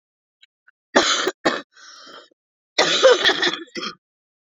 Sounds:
Throat clearing